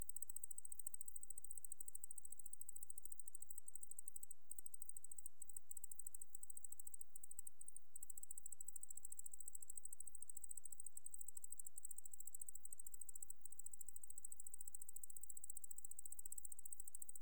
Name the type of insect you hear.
orthopteran